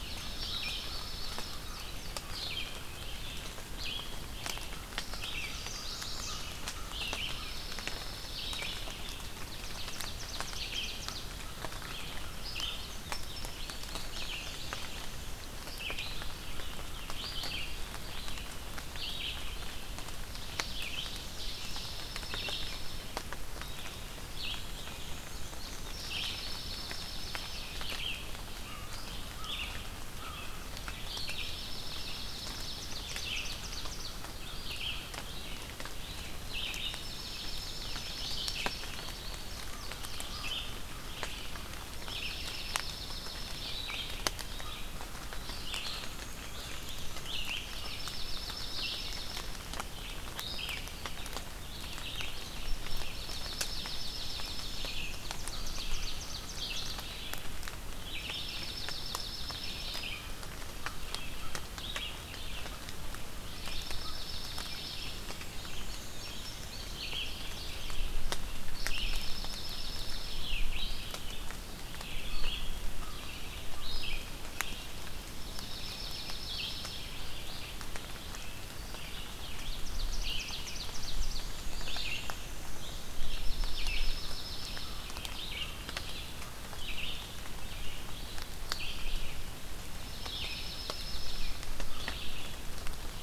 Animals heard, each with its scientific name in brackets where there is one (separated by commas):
Black-and-white Warbler (Mniotilta varia), Red-eyed Vireo (Vireo olivaceus), American Crow (Corvus brachyrhynchos), Dark-eyed Junco (Junco hyemalis), Ovenbird (Seiurus aurocapilla), Chestnut-sided Warbler (Setophaga pensylvanica), Indigo Bunting (Passerina cyanea)